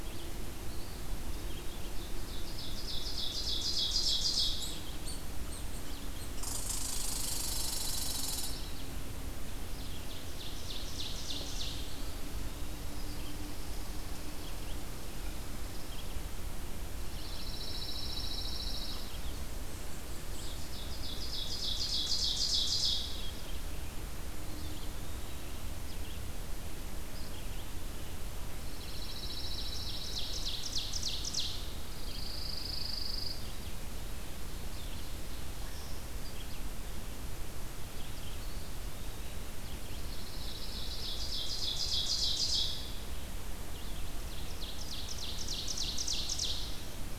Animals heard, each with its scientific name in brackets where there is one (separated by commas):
Eastern Wood-Pewee (Contopus virens), Red-eyed Vireo (Vireo olivaceus), Red Squirrel (Tamiasciurus hudsonicus), Ovenbird (Seiurus aurocapilla), Pine Warbler (Setophaga pinus)